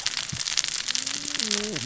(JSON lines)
{"label": "biophony, cascading saw", "recorder": "SoundTrap 600 or HydroMoth"}